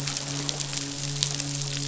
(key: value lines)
label: biophony, midshipman
recorder: SoundTrap 500